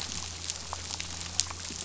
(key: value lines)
label: anthrophony, boat engine
recorder: SoundTrap 500